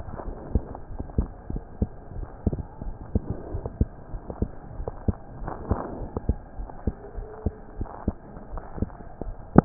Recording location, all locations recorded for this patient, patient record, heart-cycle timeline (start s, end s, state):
aortic valve (AV)
aortic valve (AV)+pulmonary valve (PV)+tricuspid valve (TV)+mitral valve (MV)
#Age: Child
#Sex: Male
#Height: 117.0 cm
#Weight: 22.7 kg
#Pregnancy status: False
#Murmur: Absent
#Murmur locations: nan
#Most audible location: nan
#Systolic murmur timing: nan
#Systolic murmur shape: nan
#Systolic murmur grading: nan
#Systolic murmur pitch: nan
#Systolic murmur quality: nan
#Diastolic murmur timing: nan
#Diastolic murmur shape: nan
#Diastolic murmur grading: nan
#Diastolic murmur pitch: nan
#Diastolic murmur quality: nan
#Outcome: Normal
#Campaign: 2015 screening campaign
0.00	0.68	unannotated
0.68	0.97	diastole
0.97	1.04	S1
1.04	1.16	systole
1.16	1.30	S2
1.30	1.49	diastole
1.49	1.62	S1
1.62	1.78	systole
1.78	1.90	S2
1.90	2.14	diastole
2.14	2.28	S1
2.28	2.45	systole
2.45	2.55	S2
2.55	2.86	diastole
2.86	2.96	S1
2.96	3.12	systole
3.12	3.24	S2
3.24	3.50	diastole
3.50	3.64	S1
3.64	3.78	systole
3.78	3.90	S2
3.90	4.12	diastole
4.12	4.22	S1
4.22	4.38	systole
4.38	4.52	S2
4.52	4.76	diastole
4.76	4.88	S1
4.88	5.04	systole
5.04	5.18	S2
5.18	5.38	diastole
5.38	5.52	S1
5.52	5.68	systole
5.68	5.82	S2
5.82	6.00	diastole
6.00	6.10	S1
6.10	6.24	systole
6.24	6.40	S2
6.40	6.56	diastole
6.56	6.70	S1
6.70	6.85	systole
6.85	6.94	S2
6.94	7.15	diastole
7.15	7.28	S1
7.28	7.44	systole
7.44	7.54	S2
7.54	7.78	diastole
7.78	7.88	S1
7.88	8.05	systole
8.05	8.16	S2
8.16	8.52	diastole
8.52	8.64	S1
8.64	8.78	systole
8.78	8.94	S2
8.94	9.22	diastole
9.22	9.36	S1
9.36	9.65	unannotated